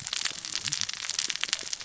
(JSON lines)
{"label": "biophony, cascading saw", "recorder": "SoundTrap 600 or HydroMoth"}